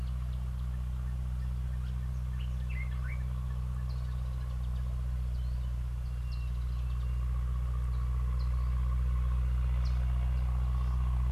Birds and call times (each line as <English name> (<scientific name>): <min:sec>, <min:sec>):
Common Bulbul (Pycnonotus barbatus): 0:02.8
Sulphur-breasted Bushshrike (Telophorus sulfureopectus): 0:06.4